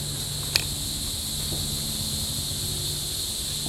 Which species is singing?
Neocicada hieroglyphica